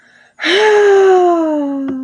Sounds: Sigh